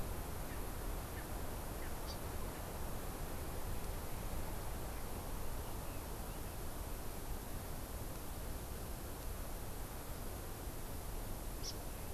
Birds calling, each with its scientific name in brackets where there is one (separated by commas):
Erckel's Francolin (Pternistis erckelii), Hawaii Amakihi (Chlorodrepanis virens)